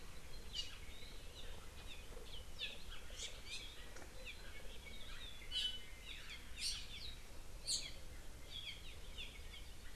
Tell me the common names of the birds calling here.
Hawaii Amakihi, Iiwi